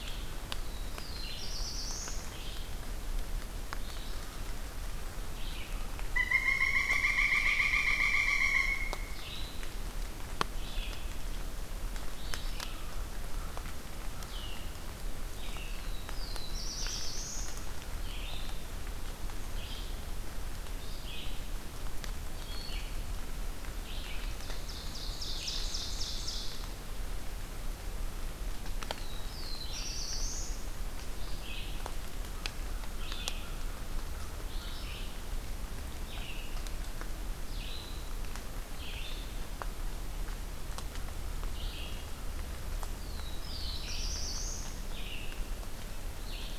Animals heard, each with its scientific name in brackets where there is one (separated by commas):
Ovenbird (Seiurus aurocapilla), American Crow (Corvus brachyrhynchos), Red-eyed Vireo (Vireo olivaceus), Pileated Woodpecker (Dryocopus pileatus), Black-throated Blue Warbler (Setophaga caerulescens)